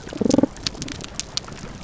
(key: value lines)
label: biophony
recorder: SoundTrap 300